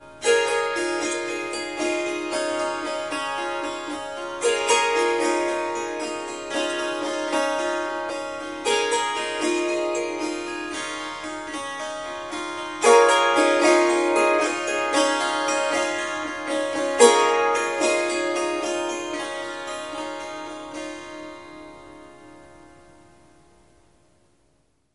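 0.1s A rhythmic melody is played on a harp with a slight echo. 23.1s

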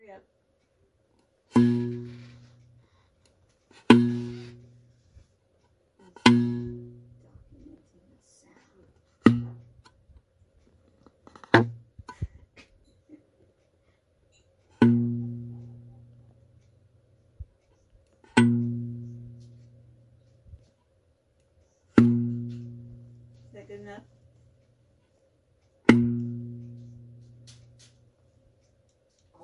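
0.0s A quiet woman is speaking. 0.3s
1.5s A sharp vibrating metal sound gradually fades as a can tab is pulled. 3.1s
3.7s A sharp vibrating metal sound gradually fades as a can tab is pulled. 4.6s
5.0s Soft rustling sound of a subtle object movement indoors. 6.2s
6.2s A sharp vibrating metal sound gradually fades as a can tab is pulled. 7.0s
7.1s A quiet female voice is heard. 9.1s
9.2s A sharp vibrating metal sound gradually fades as a can tab is pulled. 12.4s
12.6s A subtle sound of glass objects being moved. 13.2s
13.0s A quiet female voice is heard. 13.6s
14.3s Glass objects being moved quietly indoors. 14.7s
14.8s A sharp vibrating metal sound gradually fades as a can tab is pulled. 16.2s
17.1s Soft rustling sound of a subtle object movement indoors. 17.8s
18.2s A sharp vibrating metal sound gradually fades as a can tab is pulled. 19.4s
19.4s Soft rustling sound of a subtle object movement indoors. 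21.3s
21.9s A sharp vibrating metal sound gradually fades as a can tab is pulled. 23.5s
23.5s A quiet female voice is heard. 24.3s
25.9s A sharp vibrating metal sound gradually fades as a can tab is pulled. 27.4s
27.5s Soft rustling sound of a subtle object movement indoors. 27.9s
29.3s A quiet voice is heard. 29.4s

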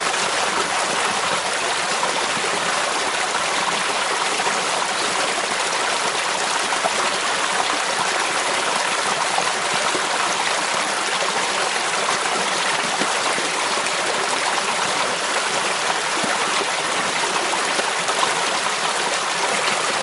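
0.1s Water flowing, like a waterfall. 20.0s

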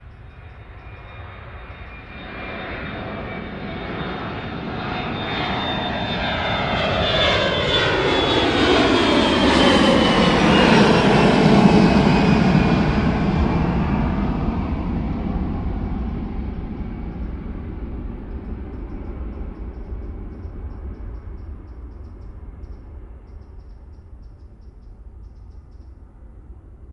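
2.3s A jet airplane produces a deep, loud whooshing sound that gradually increases in volume as it approaches and then fades into the distance. 20.5s

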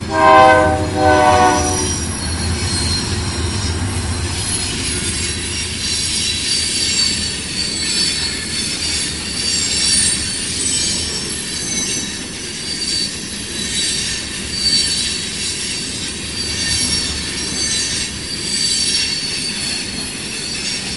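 0.0s A slow train is passing by. 21.0s
0.1s A train horn honks. 2.0s
4.4s A high-pitched sound of train wheels braking on tracks. 21.0s

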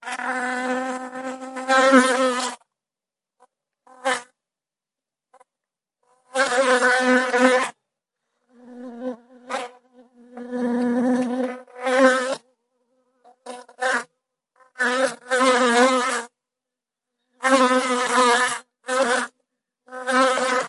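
0.0s A bee emits a long, high-pitched buzzing sound that gradually increases and then decreases indoors. 2.7s
3.8s A bee produces a brief, consistent, high-pitched buzzing sound while flying. 4.3s
6.3s A bee buzzes consistently at a moderate intensity indoors. 7.7s
8.7s A bee makes a repetitive, long buzzing sound that gradually increases until reaching a high-pitched tone. 12.5s
13.4s A bee makes a brief, moderate buzzing sound that decreases in tone. 14.1s
14.8s A bee buzzes briefly at a mid-pitch while flying indoors. 16.3s
17.4s A bee buzzes with a high-pitched sound that fades in the middle. 19.3s
19.9s A bee buzzes loudly and the sound gradually decreases. 20.7s

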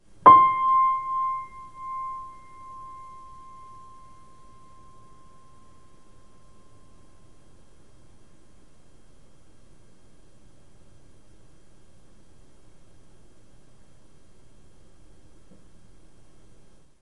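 0.2s A piano note vibrating and lingering. 8.0s

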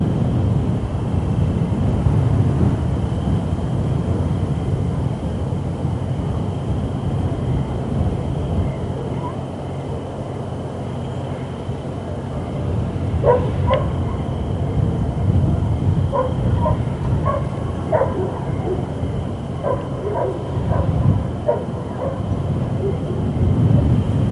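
0.0s Faint wind with barely audible cricket chirping, creating a quiet outdoor atmosphere. 13.3s
13.2s A dog barks intermittently with short pauses and a soft continuous wind rustles in the background. 24.3s

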